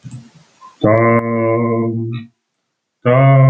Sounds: Throat clearing